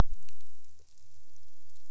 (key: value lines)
label: biophony
recorder: SoundTrap 300